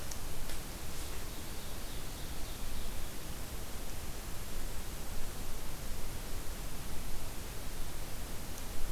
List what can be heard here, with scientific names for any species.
Seiurus aurocapilla